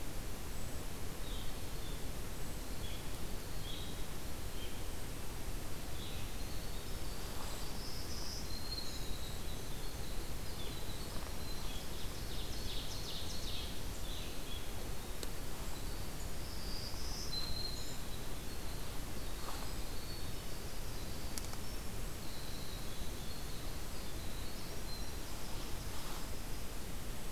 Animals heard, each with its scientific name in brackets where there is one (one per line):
unidentified call
Blue-headed Vireo (Vireo solitarius)
Black-throated Green Warbler (Setophaga virens)
Ovenbird (Seiurus aurocapilla)
Winter Wren (Troglodytes hiemalis)